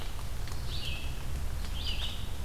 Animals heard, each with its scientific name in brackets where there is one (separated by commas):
Red-eyed Vireo (Vireo olivaceus)